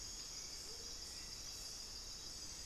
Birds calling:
Amazonian Motmot (Momotus momota), Hauxwell's Thrush (Turdus hauxwelli)

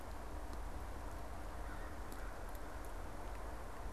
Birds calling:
American Crow (Corvus brachyrhynchos)

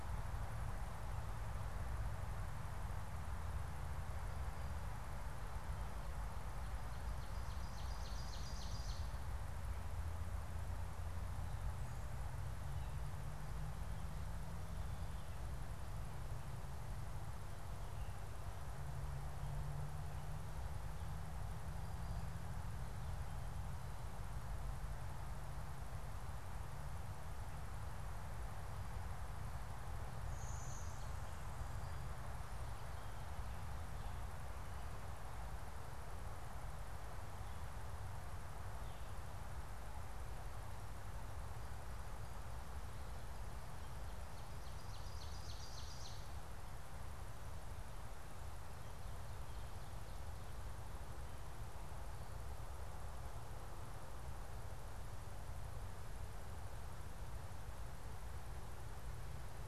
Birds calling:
Blue-winged Warbler (Vermivora cyanoptera), Ovenbird (Seiurus aurocapilla)

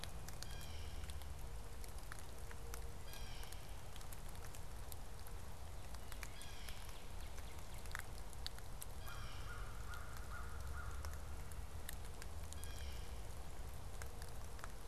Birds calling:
American Crow (Corvus brachyrhynchos), Blue Jay (Cyanocitta cristata), Northern Cardinal (Cardinalis cardinalis)

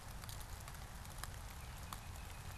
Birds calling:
Baltimore Oriole (Icterus galbula)

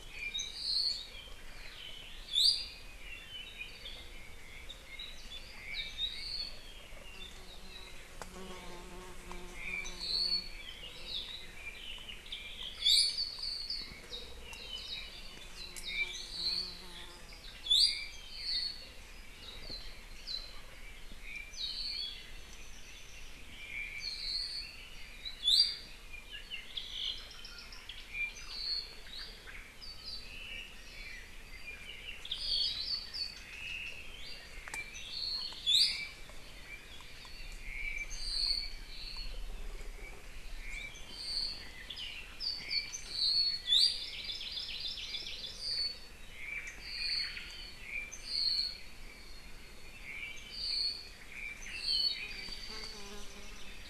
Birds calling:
Omao (Myadestes obscurus), Apapane (Himatione sanguinea), Iiwi (Drepanis coccinea), Hawaii Amakihi (Chlorodrepanis virens)

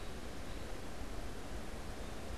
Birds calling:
American Robin (Turdus migratorius)

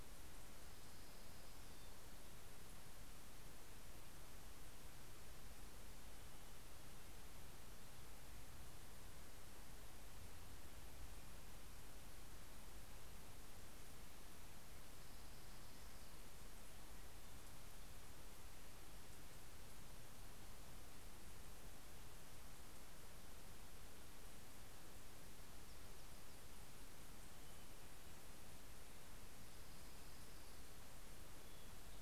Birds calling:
Orange-crowned Warbler (Leiothlypis celata)

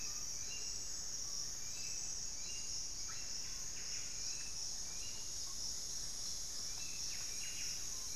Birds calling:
Screaming Piha (Lipaugus vociferans), Buff-breasted Wren (Cantorchilus leucotis), Hauxwell's Thrush (Turdus hauxwelli), Amazonian Motmot (Momotus momota)

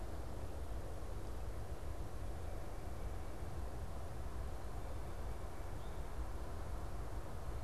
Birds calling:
Tufted Titmouse (Baeolophus bicolor)

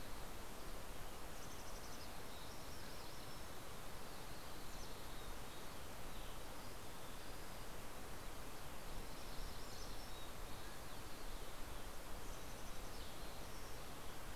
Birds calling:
Mountain Quail (Oreortyx pictus), Mountain Chickadee (Poecile gambeli), Hermit Warbler (Setophaga occidentalis)

